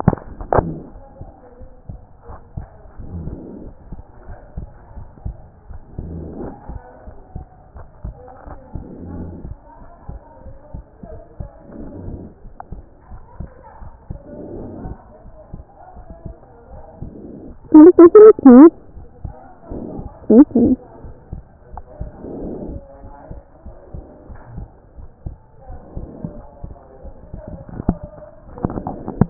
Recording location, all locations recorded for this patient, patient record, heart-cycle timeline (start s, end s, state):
pulmonary valve (PV)
aortic valve (AV)+pulmonary valve (PV)+tricuspid valve (TV)+mitral valve (MV)
#Age: Child
#Sex: Male
#Height: 127.0 cm
#Weight: 28.0 kg
#Pregnancy status: False
#Murmur: Absent
#Murmur locations: nan
#Most audible location: nan
#Systolic murmur timing: nan
#Systolic murmur shape: nan
#Systolic murmur grading: nan
#Systolic murmur pitch: nan
#Systolic murmur quality: nan
#Diastolic murmur timing: nan
#Diastolic murmur shape: nan
#Diastolic murmur grading: nan
#Diastolic murmur pitch: nan
#Diastolic murmur quality: nan
#Outcome: Normal
#Campaign: 2014 screening campaign
0.00	21.04	unannotated
21.04	21.14	S1
21.14	21.32	systole
21.32	21.42	S2
21.42	21.74	diastole
21.74	21.84	S1
21.84	22.00	systole
22.00	22.12	S2
22.12	22.44	diastole
22.44	22.54	S1
22.54	22.68	systole
22.68	22.82	S2
22.82	23.04	diastole
23.04	23.14	S1
23.14	23.32	systole
23.32	23.42	S2
23.42	23.66	diastole
23.66	23.76	S1
23.76	23.94	systole
23.94	24.02	S2
24.02	24.30	diastole
24.30	24.42	S1
24.42	24.56	systole
24.56	24.66	S2
24.66	25.00	diastole
25.00	25.08	S1
25.08	25.24	systole
25.24	25.38	S2
25.38	25.70	diastole
25.70	29.30	unannotated